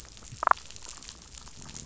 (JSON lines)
{"label": "biophony", "recorder": "SoundTrap 500"}
{"label": "biophony, damselfish", "recorder": "SoundTrap 500"}